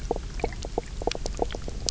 {"label": "biophony, knock croak", "recorder": "SoundTrap 300"}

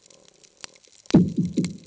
{"label": "anthrophony, bomb", "recorder": "HydroMoth"}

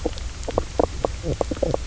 {"label": "biophony, knock croak", "recorder": "SoundTrap 300"}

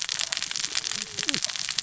{"label": "biophony, cascading saw", "recorder": "SoundTrap 600 or HydroMoth"}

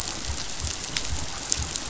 {"label": "biophony", "recorder": "SoundTrap 500"}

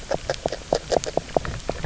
{"label": "biophony, grazing", "recorder": "SoundTrap 300"}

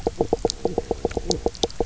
{"label": "biophony, knock croak", "recorder": "SoundTrap 300"}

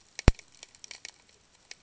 {"label": "ambient", "recorder": "HydroMoth"}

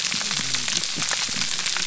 {"label": "biophony, whup", "recorder": "SoundTrap 300"}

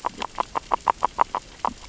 {"label": "biophony, grazing", "recorder": "SoundTrap 600 or HydroMoth"}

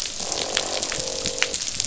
{"label": "biophony, croak", "recorder": "SoundTrap 500"}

